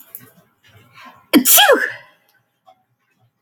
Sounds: Sneeze